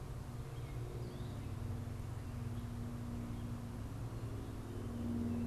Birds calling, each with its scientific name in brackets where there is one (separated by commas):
Gray Catbird (Dumetella carolinensis)